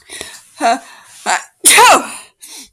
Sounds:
Sneeze